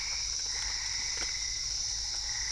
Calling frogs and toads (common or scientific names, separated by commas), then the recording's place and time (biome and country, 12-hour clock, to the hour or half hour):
Boana albopunctata
Cerrado, Brazil, 8:30pm